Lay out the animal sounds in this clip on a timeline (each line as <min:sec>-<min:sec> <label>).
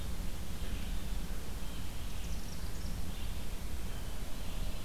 0:00.0-0:02.0 Blue Jay (Cyanocitta cristata)
0:00.0-0:04.8 Red-eyed Vireo (Vireo olivaceus)
0:01.9-0:03.4 Chimney Swift (Chaetura pelagica)
0:03.7-0:04.8 Blue Jay (Cyanocitta cristata)